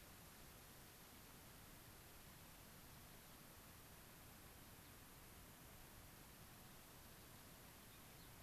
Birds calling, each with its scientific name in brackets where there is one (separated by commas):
Gray-crowned Rosy-Finch (Leucosticte tephrocotis)